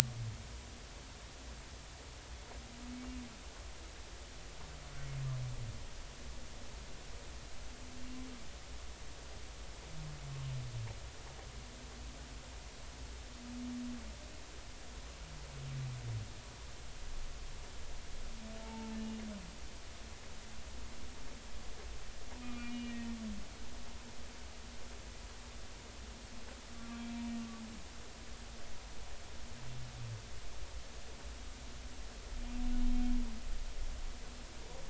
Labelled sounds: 18.6	19.0	humpback whale, 0.83 to 0.96 kHz
22.4	23.2	humpback whale, 1.2 to 2.9 kHz
26.8	27.0	humpback whale, 1.1 to 1.2 kHz

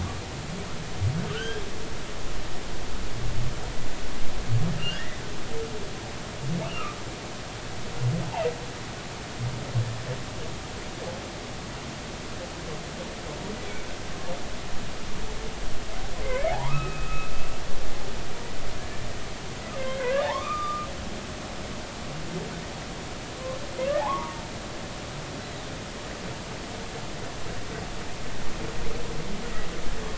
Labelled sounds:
1.3	1.7	humpback whale, 1.3 to 3.4 kHz
4.8	5.2	humpback whale, 1.3 to 3.1 kHz
16.2	17.3	humpback whale, 0.80 to 2.7 kHz
19.8	20.9	humpback whale, 0.80 to 2.5 kHz
24.0	24.4	humpback whale, 0.80 to 1.3 kHz

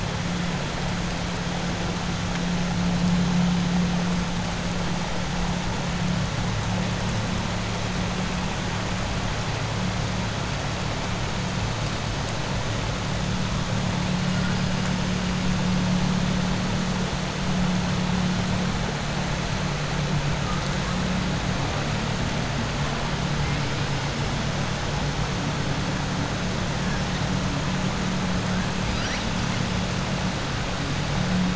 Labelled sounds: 28.8	29.3	killer whale, southern resident, 1.4 to 5.8 kHz

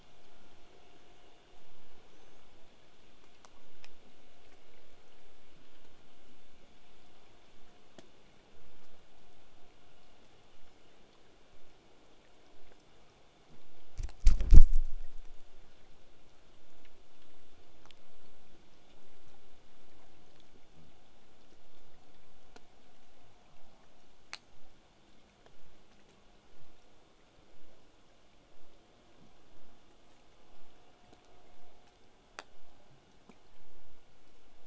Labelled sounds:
2.1	2.4	killer whale, southern resident, whistle, 5.7 to 8.0 kHz

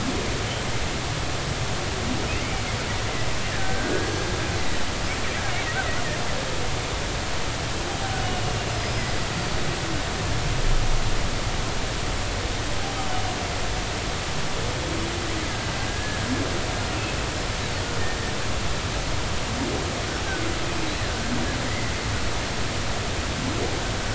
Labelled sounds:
2.4	2.6	humpback whale, 2.0 to 2.4 kHz
3.5	4.0	killer whale, Bigg's (transient), 1.4 to 1.8 kHz
8.7	9.6	killer whale, Bigg's (transient), 4.5 to 5.2 kHz
15.9	16.2	killer whale, Bigg's (transient), 1.6 to 1.8 kHz

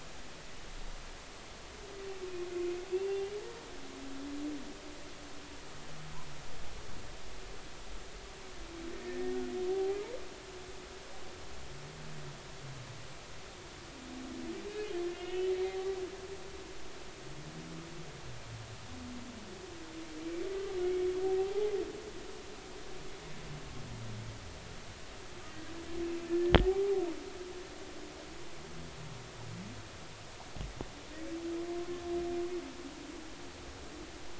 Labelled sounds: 2.5	3.3	humpback whale, 2.4 to 2.8 kHz
8.9	10.0	humpback whale, 0.80 to 1.9 kHz
15.1	15.9	humpback whale, 0.80 to 3.1 kHz
21.4	21.7	humpback whale, 0.80 to 0.90 kHz
26.3	27.0	humpback whale, 0.80 to 1.8 kHz

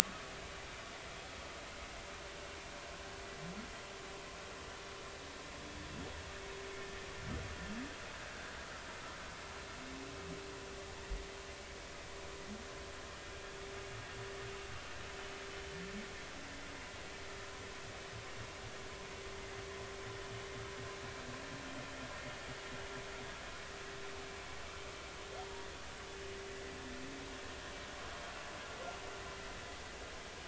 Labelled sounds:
25.4	25.7	humpback whale, 0.86 to 0.99 kHz

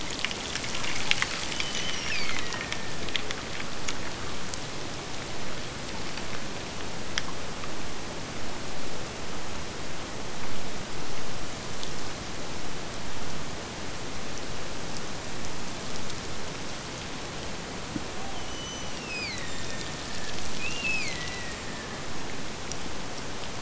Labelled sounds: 1.5	3.1	killer whale, Bigg's (transient), Gulf of Alaska transient, 1.5 to 6.2 kHz
18.3	22.2	killer whale, Bigg's (transient), Gulf of Alaska transient, 1.6 to 6.1 kHz

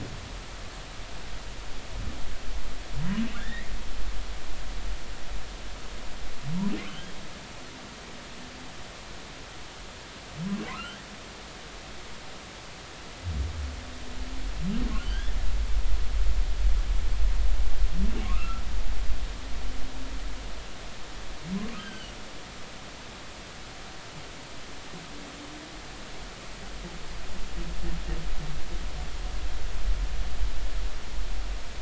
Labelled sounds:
3.4	3.7	humpback whale, 1.6 to 3.8 kHz
6.9	7.1	humpback whale, 2.9 to 3.4 kHz
10.7	11.1	humpback whale, 1.2 to 3.3 kHz
15.0	15.4	humpback whale, 1.5 to 3.5 kHz
18.2	18.6	humpback whale, 1.0 to 1.4 kHz
21.8	22.1	humpback whale, 1.5 to 3.3 kHz

